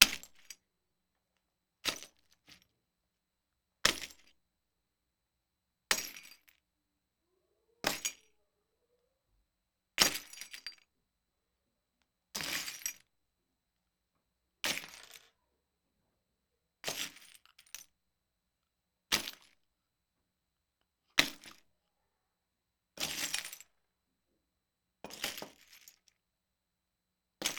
What material is likely being crushed?
glass